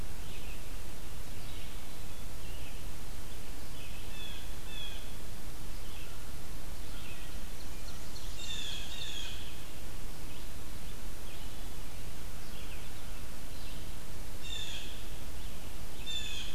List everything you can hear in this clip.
Red-eyed Vireo, Blue Jay, Ovenbird